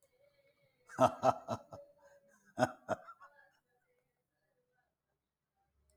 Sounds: Laughter